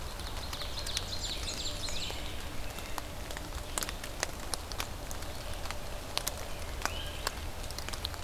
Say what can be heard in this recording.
Ovenbird, Blackburnian Warbler, Great Crested Flycatcher, American Robin